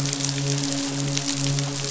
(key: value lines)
label: biophony, midshipman
recorder: SoundTrap 500